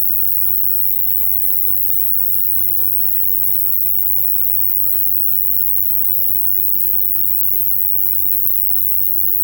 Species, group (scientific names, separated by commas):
Ruspolia nitidula, Orthoptera